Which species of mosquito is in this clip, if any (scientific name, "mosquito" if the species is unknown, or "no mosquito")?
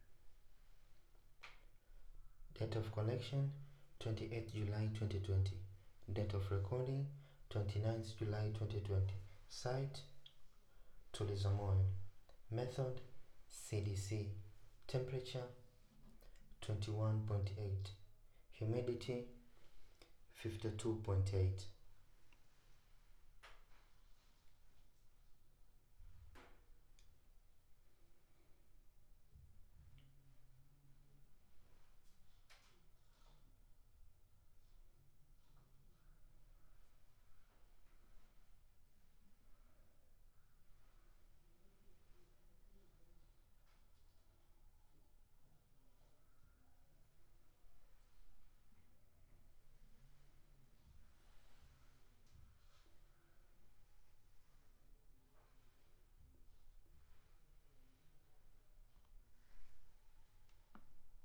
no mosquito